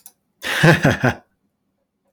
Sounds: Laughter